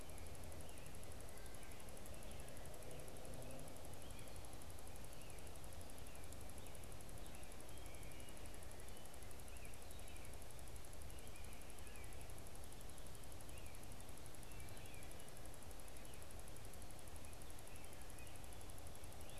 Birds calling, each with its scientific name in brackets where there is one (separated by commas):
American Robin (Turdus migratorius)